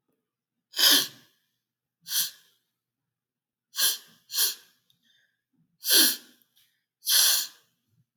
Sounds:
Sniff